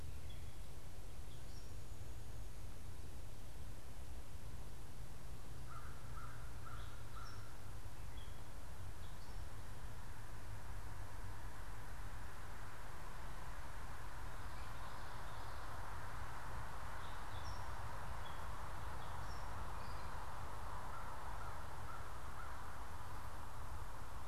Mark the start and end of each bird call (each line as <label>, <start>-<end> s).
Gray Catbird (Dumetella carolinensis), 0.0-1.9 s
American Crow (Corvus brachyrhynchos), 5.5-7.5 s
Gray Catbird (Dumetella carolinensis), 6.4-9.4 s
Gray Catbird (Dumetella carolinensis), 16.6-20.2 s
American Crow (Corvus brachyrhynchos), 20.8-22.6 s